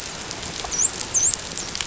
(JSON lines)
{"label": "biophony, dolphin", "recorder": "SoundTrap 500"}